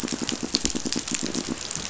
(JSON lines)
{"label": "biophony, pulse", "recorder": "SoundTrap 500"}